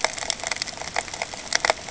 {"label": "ambient", "recorder": "HydroMoth"}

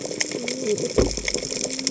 {"label": "biophony, cascading saw", "recorder": "HydroMoth"}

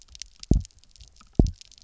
{"label": "biophony, double pulse", "recorder": "SoundTrap 300"}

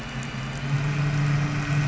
{"label": "anthrophony, boat engine", "recorder": "SoundTrap 500"}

